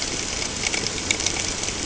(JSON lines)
{"label": "ambient", "recorder": "HydroMoth"}